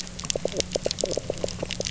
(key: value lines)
label: biophony
recorder: SoundTrap 300